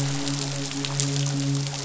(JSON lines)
{"label": "biophony, midshipman", "recorder": "SoundTrap 500"}